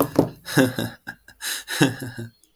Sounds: Laughter